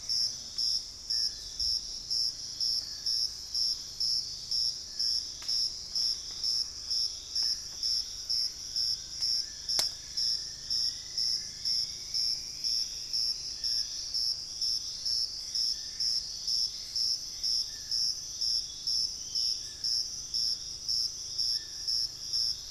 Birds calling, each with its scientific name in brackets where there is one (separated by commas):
unidentified bird, Gray Antbird (Cercomacra cinerascens), Dusky-throated Antshrike (Thamnomanes ardesiacus), Ringed Antpipit (Corythopis torquatus), Black-faced Antthrush (Formicarius analis), Cinnamon-rumped Foliage-gleaner (Philydor pyrrhodes)